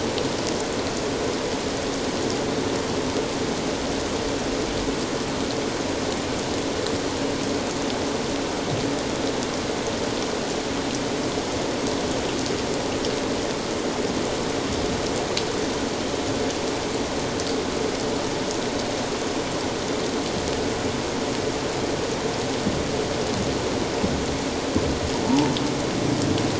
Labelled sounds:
25.3	25.5	humpback whale, 0.81 to 1.0 kHz

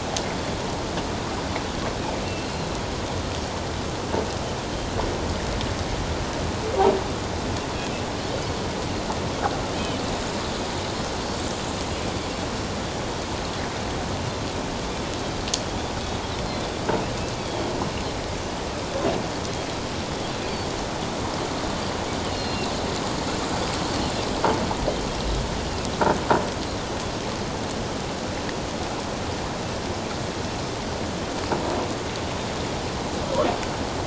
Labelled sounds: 9.7	10.0	Pacific white-sided dolphin, 2.8 to 3.2 kHz
17.4	17.6	Pacific white-sided dolphin, 3.1 to 3.5 kHz
22.2	22.7	Pacific white-sided dolphin, 2.7 to 4.3 kHz

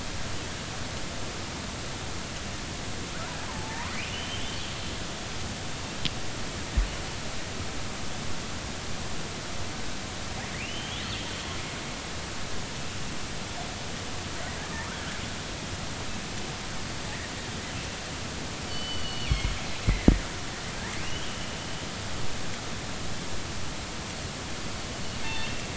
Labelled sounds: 3.5	3.9	killer whale, northern resident, R clan, call N33, 0.80 to 1.2 kHz
4.0	4.5	killer whale, northern resident, R clan, call N32i, 2.7 to 3.2 kHz
10.6	11.0	killer whale, northern resident, R clan, call N32i, 2.2 to 3.6 kHz
18.7	19.5	killer whale, northern resident, G clan, GG subclan, call N23ii, 2.1 to 4.6 kHz
19.9	20.1	killer whale, northern resident, G clan, 1.8 to 2.2 kHz
21.0	21.3	killer whale, northern resident, R clan, call N32i, 2.6 to 3.4 kHz
25.2	25.6	killer whale, northern resident, G clan, call N24i, 2.6 to 3.7 kHz

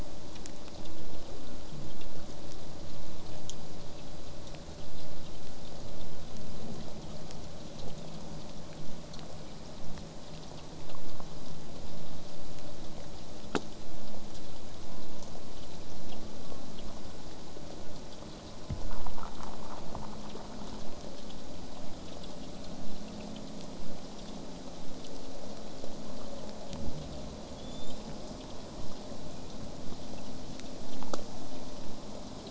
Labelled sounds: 1.4	1.7	killer whale, southern resident, J pod, call S04, 1.1 to 1.6 kHz
5.7	11.8	killer whale, southern resident, J pod, 7.5 to 8.0 kHz
27.6	28.0	killer whale, southern resident, J pod, 3.2 to 8.0 kHz

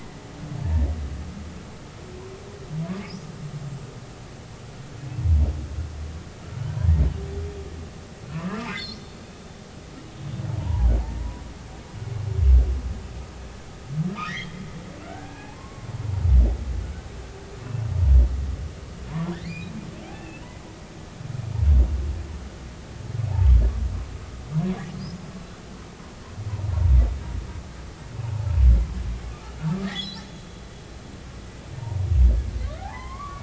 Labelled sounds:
8.3	8.9	humpback whale, 0.96 to 2.8 kHz
10.6	11.4	humpback whale, 0.80 to 1.1 kHz
14.3	15.9	humpback whale, 0.80 to 3.4 kHz
19.1	19.7	humpback whale, 0.90 to 2.6 kHz
20.1	20.4	humpback whale, 2.5 to 2.8 kHz
29.8	30.3	humpback whale, 1.6 to 4.2 kHz
32.8	33.4	humpback whale, 0.80 to 2.3 kHz

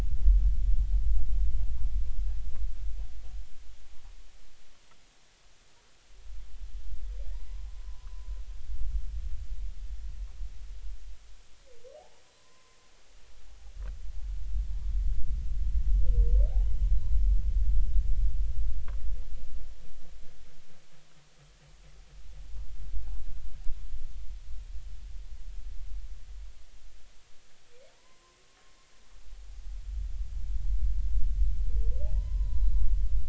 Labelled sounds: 7.3	8.3	humpback whale, 0.83 to 2.0 kHz
11.9	12.8	humpback whale, 0.80 to 1.1 kHz
16.5	16.8	humpback whale, 0.80 to 1.0 kHz
27.9	28.4	humpback whale, 0.90 to 1.2 kHz
32.1	32.8	humpback whale, 0.80 to 4.0 kHz

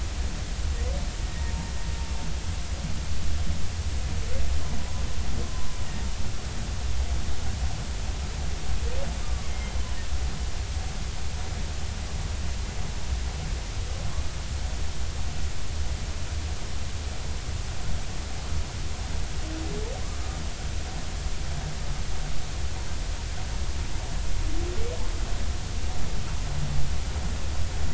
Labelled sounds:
1.3	1.7	humpback whale, 0.86 to 1.9 kHz
4.8	5.7	humpback whale, 0.96 to 1.1 kHz
9.2	9.5	humpback whale, 1.1 to 1.2 kHz

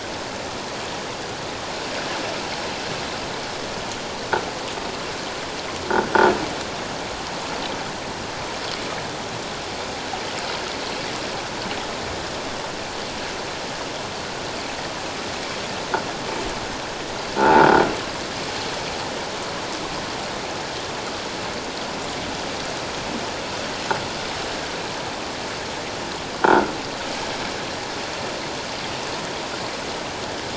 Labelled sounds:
17.4	17.7	croaking sound likely from a nearby submerged object, 0.78 to 1.5 kHz
26.4	26.7	croaking sound likely from a nearby submerged object, 1.3 to 1.6 kHz

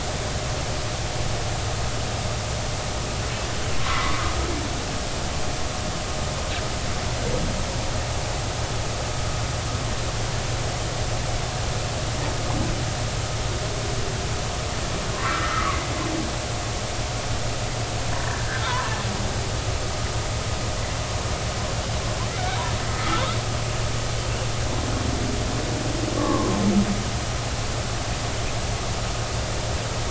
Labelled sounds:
3.8	4.2	humpback whale, 0.99 to 2.1 kHz
15.2	15.8	humpback whale, 1.0 to 2.1 kHz
18.2	19.0	humpback whale, 0.83 to 3.6 kHz
22.9	23.2	humpback whale, 1.2 to 1.4 kHz
26.2	26.6	humpback whale, 0.96 to 1.2 kHz

